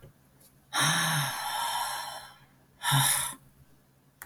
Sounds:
Sigh